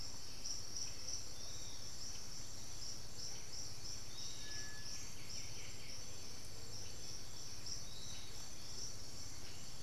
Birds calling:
Blue-headed Parrot (Pionus menstruus), Piratic Flycatcher (Legatus leucophaius), White-winged Becard (Pachyramphus polychopterus)

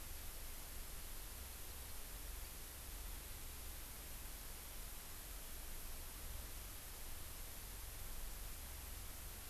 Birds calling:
Hawaii Amakihi (Chlorodrepanis virens)

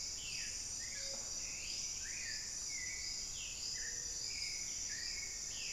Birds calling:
Black-billed Thrush (Turdus ignobilis)

